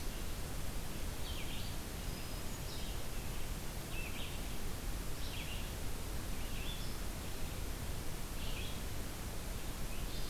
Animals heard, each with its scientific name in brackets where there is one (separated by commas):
Hermit Thrush (Catharus guttatus), Red-eyed Vireo (Vireo olivaceus)